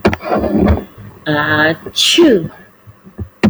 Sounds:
Sneeze